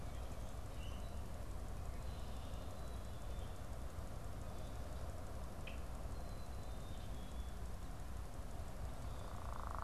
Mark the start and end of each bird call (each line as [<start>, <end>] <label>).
[0.70, 1.20] Common Grackle (Quiscalus quiscula)
[2.70, 3.50] Black-capped Chickadee (Poecile atricapillus)
[5.50, 5.80] Common Grackle (Quiscalus quiscula)
[6.00, 7.60] Black-capped Chickadee (Poecile atricapillus)